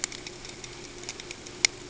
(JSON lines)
{"label": "ambient", "recorder": "HydroMoth"}